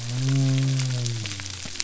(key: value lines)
label: biophony
recorder: SoundTrap 300